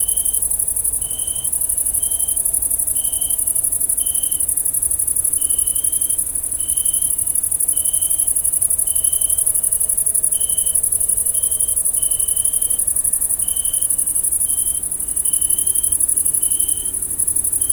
Can a strike in a bowling alley be heard?
no